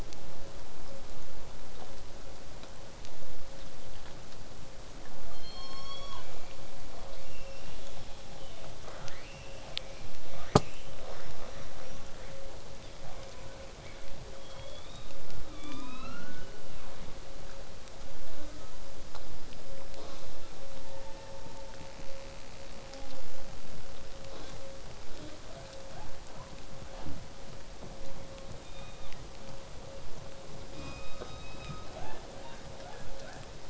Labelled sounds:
0.0	5.0	vessel noise, 0 to 8.0 kHz
5.3	6.3	killer whale, southern resident, call S16, 0.77 to 8.0 kHz
7.1	12.4	killer whale, southern resident, 0.46 to 7.7 kHz
13.0	14.1	killer whale, southern resident, 0.50 to 3.7 kHz
14.4	15.2	killer whale, southern resident, 0.89 to 5.0 kHz
15.4	16.8	killer whale, southern resident, 0.81 to 6.4 kHz
18.3	18.9	killer whale, southern resident, J pod, call S05, 0.21 to 4.0 kHz
19.9	20.3	killer whale, southern resident, J pod, call S05, 0.23 to 6.6 kHz
20.7	21.3	killer whale, southern resident, 0.93 to 3.0 kHz
22.9	23.2	killer whale, southern resident, J pod, call S05, 0.19 to 6.5 kHz
24.3	24.6	killer whale, southern resident, J pod, call S05, 0.12 to 6.9 kHz
25.1	25.4	killer whale, southern resident, J pod, call S05, 0.15 to 6.0 kHz
25.5	26.5	killer whale, southern resident, 0.46 to 1.9 kHz
28.6	29.2	killer whale, southern resident, call S16, 0.81 to 3.9 kHz
30.7	32.0	killer whale, southern resident, call S17, 1.1 to 7.8 kHz
30.7	31.0	killer whale, southern resident, J pod, call S05, 0.50 to 8.0 kHz
31.9	33.5	killer whale, southern resident, 0.39 to 3.8 kHz

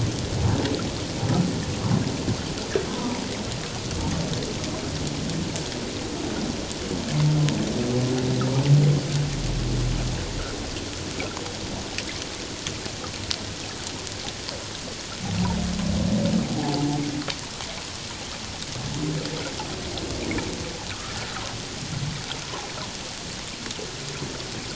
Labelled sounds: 2.9	3.2	humpback whale, 0.91 to 1.1 kHz
16.6	16.8	humpback whale, 0.78 to 0.94 kHz
20.9	21.2	humpback whale, 1.1 to 1.5 kHz
22.4	22.7	humpback whale, 0.78 to 1.1 kHz

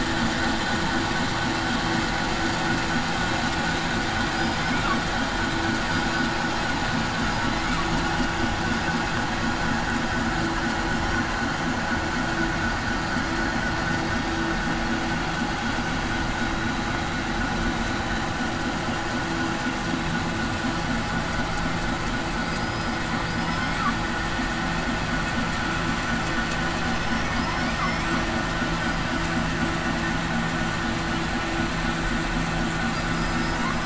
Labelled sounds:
22.4	23.0	killer whale, southern resident, 4.7 to 5.1 kHz
23.3	23.7	killer whale, southern resident, 4.9 to 8.0 kHz
33.1	33.6	killer whale, southern resident, 4.9 to 5.2 kHz

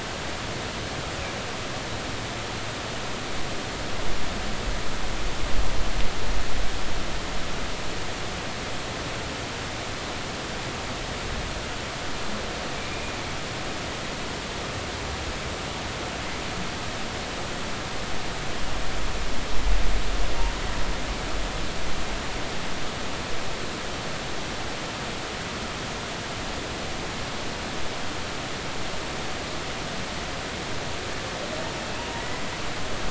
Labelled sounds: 32.1	32.4	humpback whale, 1.8 to 2.1 kHz

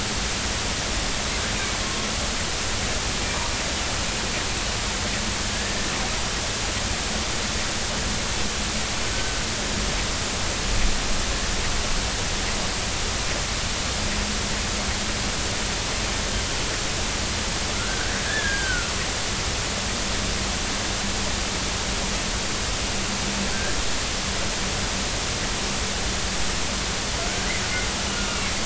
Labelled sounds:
17.7	18.9	killer whale, northern resident, 1.3 to 1.8 kHz
23.5	23.8	killer whale, northern resident, 1.4 to 1.8 kHz

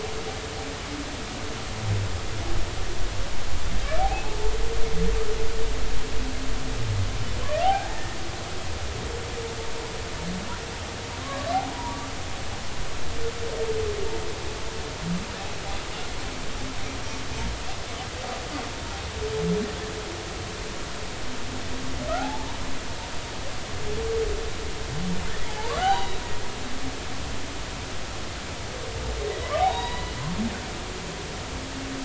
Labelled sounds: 4.1	4.5	humpback whale, 0.83 to 2.7 kHz
7.6	8.2	humpback whale, 0.80 to 1.9 kHz
11.2	12.0	humpback whale, 0.90 to 1.2 kHz
22.2	22.6	humpback whale, 0.80 to 1.0 kHz
25.4	26.2	humpback whale, 0.80 to 4.0 kHz
29.4	30.2	humpback whale, 0.80 to 4.0 kHz

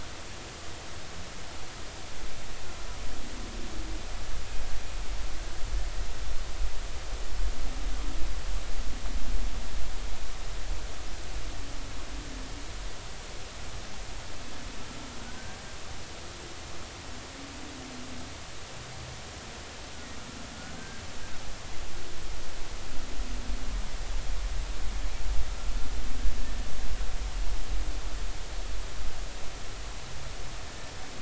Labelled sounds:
20.8	21.0	humpback whale, 1.5 to 1.6 kHz

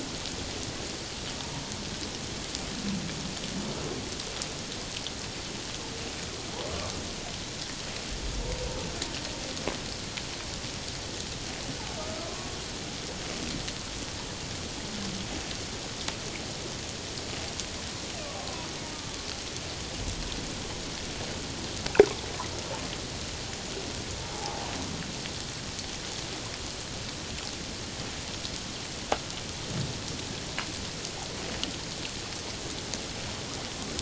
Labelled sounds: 12.0	12.5	humpback whale, 0.97 to 1.3 kHz
18.9	19.3	humpback whale, 1.1 to 1.2 kHz
24.2	24.7	humpback whale, 0.78 to 0.97 kHz

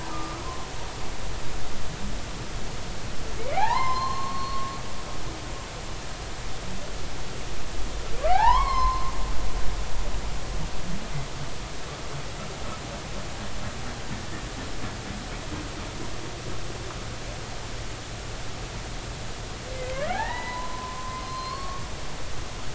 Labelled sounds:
0.1	0.4	humpback whale, 1.1 to 1.3 kHz
3.6	4.7	humpback whale, 0.80 to 5.3 kHz
8.3	9.1	humpback whale, 0.80 to 4.4 kHz
19.9	21.8	humpback whale, 0.80 to 4.4 kHz

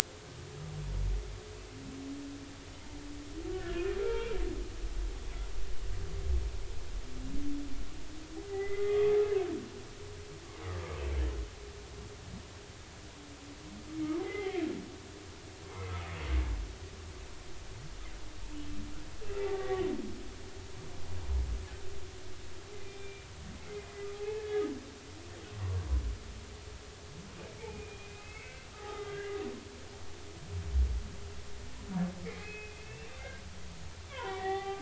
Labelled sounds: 3.5	4.4	humpback whale, 1.2 to 2.6 kHz
8.5	9.5	humpback whale, 1.1 to 2.1 kHz
14.2	14.6	humpback whale, 1.8 to 2.4 kHz
15.7	15.9	humpback whale, 2.0 to 2.2 kHz
19.4	19.9	humpback whale, 1.1 to 2.1 kHz
22.8	23.9	humpback whale, 2.0 to 2.4 kHz
24.1	24.6	humpback whale, 0.80 to 1.8 kHz
27.6	29.4	humpback whale, 0.80 to 2.7 kHz
32.2	33.1	humpback whale, 1.9 to 2.8 kHz
34.1	34.8	humpback whale, 0.80 to 3.6 kHz

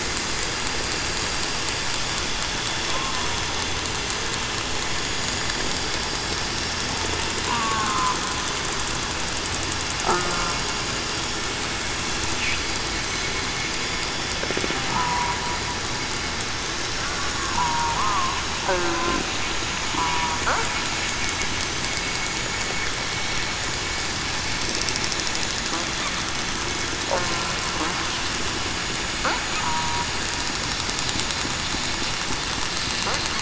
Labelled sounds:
2.9	3.3	killer whale, southern resident, 0.96 to 1.1 kHz
7.5	7.8	killer whale, southern resident, 0.80 to 1.1 kHz
14.9	15.4	killer whale, southern resident, 0.87 to 1.0 kHz
17.5	18.3	killer whale, southern resident, 0.87 to 1.3 kHz
20.0	20.3	killer whale, southern resident, 0.94 to 1.0 kHz
29.6	30.1	killer whale, southern resident, 0.91 to 1.0 kHz

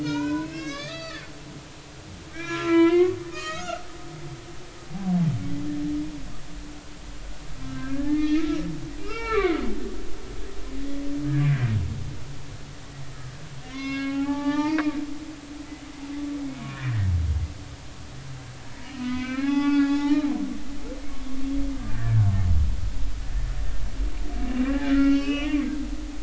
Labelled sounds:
0.0	1.2	humpback whale, 0.90 to 6.6 kHz
2.3	3.8	humpback whale, 0.93 to 7.0 kHz
7.6	8.5	humpback whale, 1.5 to 3.7 kHz
9.0	9.6	humpback whale, 0.99 to 5.5 kHz
13.6	14.8	humpback whale, 0.80 to 5.7 kHz
15.2	17.0	humpback whale, 1.0 to 2.3 kHz
18.9	20.2	humpback whale, 0.80 to 4.7 kHz
21.9	22.2	humpback whale, 1.5 to 1.9 kHz
24.4	25.8	humpback whale, 1.1 to 5.3 kHz

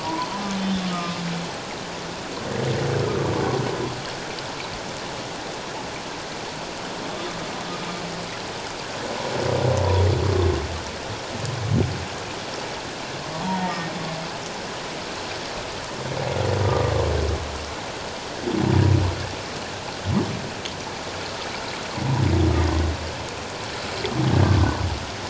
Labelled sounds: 0.0	0.3	humpback whale, 0.91 to 1.1 kHz
0.6	1.2	humpback whale, 1.2 to 3.7 kHz
3.0	3.3	humpback whale, 1.1 to 1.4 kHz
13.3	13.9	humpback whale, 0.78 to 1.9 kHz
16.6	16.9	humpback whale, 1.1 to 1.2 kHz
24.3	24.7	humpback whale, 0.97 to 1.7 kHz

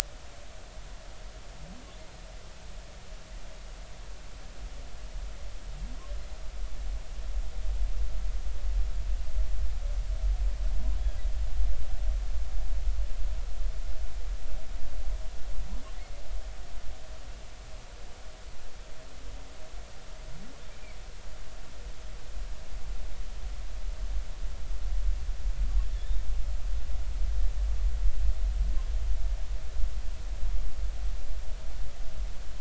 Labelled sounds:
26.0	26.3	humpback whale, 3.5 to 3.9 kHz

